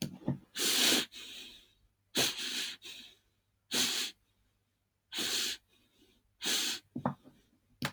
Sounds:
Sniff